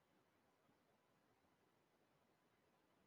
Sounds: Laughter